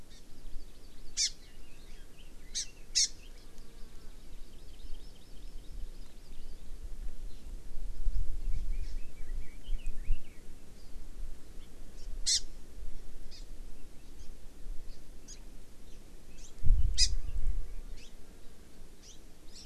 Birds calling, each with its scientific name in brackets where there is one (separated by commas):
Hawaii Amakihi (Chlorodrepanis virens), Red-billed Leiothrix (Leiothrix lutea)